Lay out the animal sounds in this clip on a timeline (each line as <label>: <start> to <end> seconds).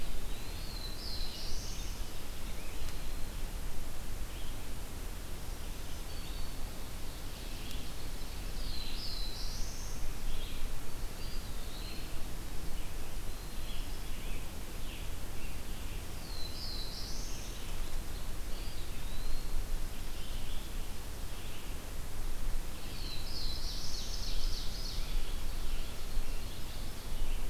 Black-throated Blue Warbler (Setophaga caerulescens): 0.0 to 2.5 seconds
Black-throated Green Warbler (Setophaga virens): 5.5 to 6.8 seconds
Black-throated Blue Warbler (Setophaga caerulescens): 7.9 to 10.3 seconds
Eastern Wood-Pewee (Contopus virens): 10.8 to 12.2 seconds
American Robin (Turdus migratorius): 12.4 to 15.2 seconds
Black-capped Chickadee (Poecile atricapillus): 13.2 to 14.3 seconds
Black-throated Blue Warbler (Setophaga caerulescens): 15.5 to 18.0 seconds
Eastern Wood-Pewee (Contopus virens): 18.5 to 19.7 seconds
Black-throated Blue Warbler (Setophaga caerulescens): 22.2 to 24.7 seconds
Ovenbird (Seiurus aurocapilla): 23.0 to 27.5 seconds
Scarlet Tanager (Piranga olivacea): 23.8 to 26.6 seconds